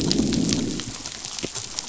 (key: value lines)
label: biophony, growl
recorder: SoundTrap 500